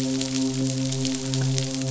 {"label": "biophony, midshipman", "recorder": "SoundTrap 500"}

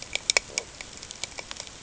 {"label": "ambient", "recorder": "HydroMoth"}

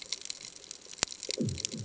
{"label": "anthrophony, bomb", "recorder": "HydroMoth"}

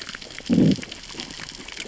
{"label": "biophony, growl", "recorder": "SoundTrap 600 or HydroMoth"}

